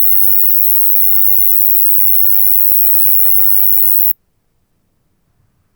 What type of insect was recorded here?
orthopteran